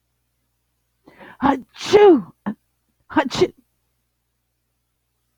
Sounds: Sneeze